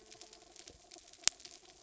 {"label": "anthrophony, mechanical", "recorder": "SoundTrap 300"}
{"label": "biophony", "recorder": "SoundTrap 300"}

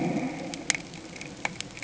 {"label": "anthrophony, boat engine", "recorder": "HydroMoth"}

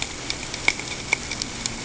{"label": "ambient", "recorder": "HydroMoth"}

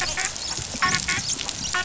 {"label": "biophony, dolphin", "recorder": "SoundTrap 500"}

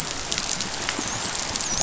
{"label": "biophony, dolphin", "recorder": "SoundTrap 500"}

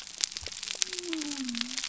{"label": "biophony", "recorder": "SoundTrap 300"}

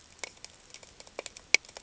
{"label": "ambient", "recorder": "HydroMoth"}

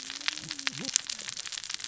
{"label": "biophony, cascading saw", "recorder": "SoundTrap 600 or HydroMoth"}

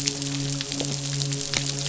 {"label": "biophony, midshipman", "recorder": "SoundTrap 500"}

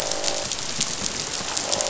{"label": "biophony, croak", "recorder": "SoundTrap 500"}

